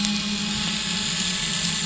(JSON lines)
{"label": "anthrophony, boat engine", "recorder": "SoundTrap 500"}